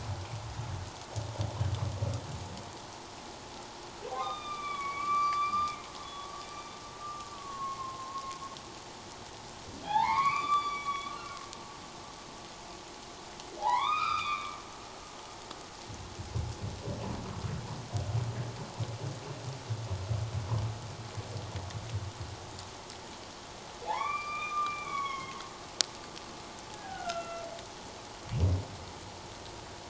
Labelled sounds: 4.1	5.7	humpback whale, 0.78 to 6.0 kHz
6.0	6.3	humpback whale, 3.3 to 3.5 kHz
7.4	8.2	humpback whale, 1.0 to 1.2 kHz
9.8	11.4	humpback whale, 0.78 to 7.0 kHz
13.6	14.6	humpback whale, 0.78 to 5.2 kHz
23.9	25.4	humpback whale, 0.78 to 5.8 kHz
26.7	27.5	humpback whale, 1.3 to 2.8 kHz

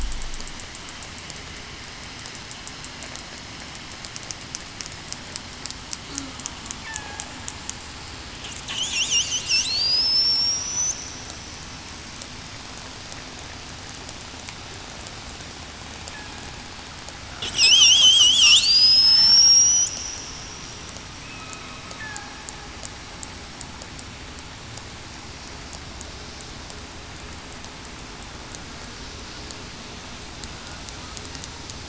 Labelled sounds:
6.8	7.2	killer whale, southern resident, 1.6 to 1.9 kHz
9.6	10.0	killer whale, southern resident, 7.9 to 8.0 kHz
17.6	18.0	killer whale, southern resident, 5.0 to 6.5 kHz
19.3	19.9	killer whale, southern resident, 5.3 to 8.0 kHz
21.2	21.6	killer whale, southern resident, 2.4 to 2.6 kHz
22.0	22.4	killer whale, southern resident, 0.80 to 0.89 kHz

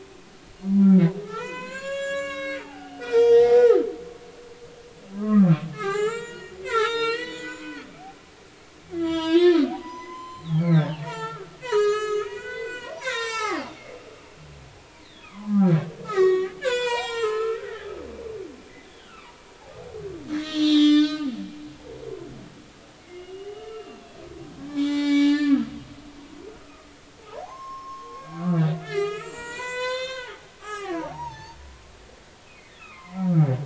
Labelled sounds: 0.7	3.9	humpback whale, 0.80 to 7.8 kHz
5.1	7.9	humpback whale, 0.80 to 8.0 kHz
8.9	13.6	humpback whale, 0.80 to 7.9 kHz
15.0	18.0	humpback whale, 0.80 to 8.0 kHz
18.9	19.4	humpback whale, 0.90 to 3.6 kHz
20.2	21.3	humpback whale, 1.1 to 7.5 kHz
23.0	24.2	humpback whale, 2.0 to 3.0 kHz
24.7	25.7	humpback whale, 0.80 to 7.6 kHz
26.6	26.9	humpback whale, 1.1 to 1.4 kHz
27.4	33.3	humpback whale, 0.80 to 8.0 kHz

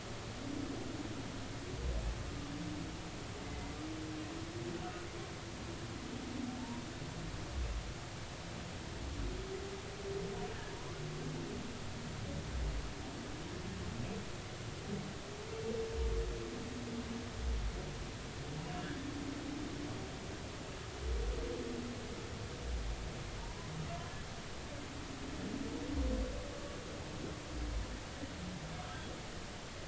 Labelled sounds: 3.4	3.8	humpback whale, 2.0 to 2.1 kHz
6.6	6.8	humpback whale, 0.83 to 0.99 kHz
10.7	11.0	humpback whale, 0.90 to 1.2 kHz
23.4	23.7	humpback whale, 0.86 to 1.1 kHz

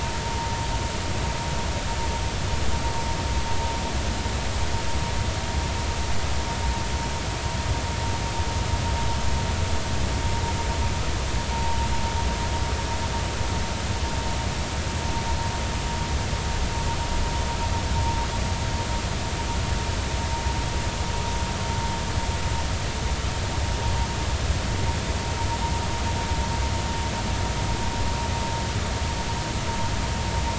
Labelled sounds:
11.5	11.8	vessel noise, 0.80 to 0.99 kHz

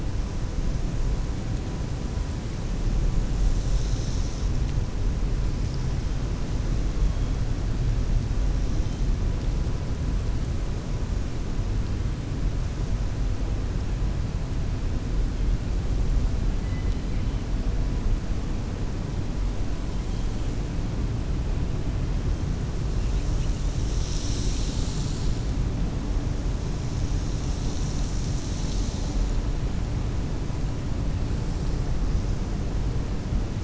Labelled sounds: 16.6	17.3	killer whale, 1.9 to 4.0 kHz

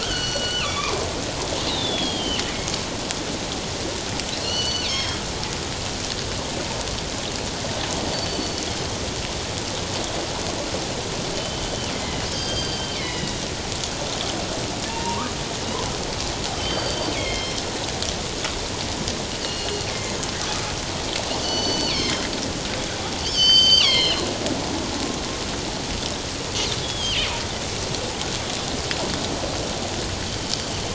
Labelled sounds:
0.0	1.0	killer whale, northern resident, G clan, 0.94 to 5.9 kHz
1.7	2.4	killer whale, northern resident, G clan, 2.6 to 4.1 kHz
4.4	5.2	killer whale, northern resident, G clan, 1.9 to 6.0 kHz
8.1	8.6	killer whale, northern resident, G clan, 4.4 to 4.6 kHz
11.3	13.4	killer whale, northern resident, G clan, 1.9 to 6.4 kHz
14.9	15.3	killer whale, northern resident, G clan, 0.84 to 1.3 kHz
16.6	17.6	killer whale, northern resident, G clan, 2.0 to 5.4 kHz
19.4	20.2	killer whale, northern resident, G clan, 2.0 to 2.9 kHz
21.4	22.2	killer whale, northern resident, G clan, 2.0 to 6.2 kHz
23.2	24.3	killer whale, northern resident, G clan, 0.91 to 6.5 kHz
26.8	27.3	killer whale, northern resident, G clan, 2.6 to 8.0 kHz

